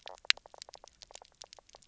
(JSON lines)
{"label": "biophony, knock croak", "recorder": "SoundTrap 300"}